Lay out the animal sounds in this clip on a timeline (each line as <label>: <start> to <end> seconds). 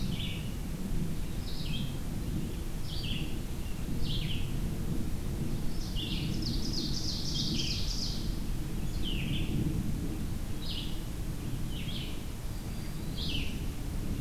Red-eyed Vireo (Vireo olivaceus): 0.0 to 14.2 seconds
Ovenbird (Seiurus aurocapilla): 5.7 to 8.4 seconds